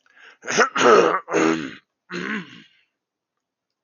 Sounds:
Throat clearing